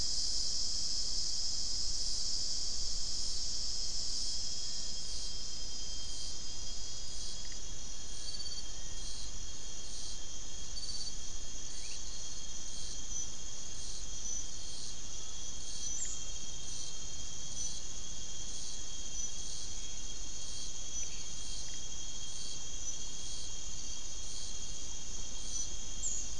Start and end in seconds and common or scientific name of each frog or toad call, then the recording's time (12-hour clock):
17.4	17.8	Leptodactylus latrans
7:00pm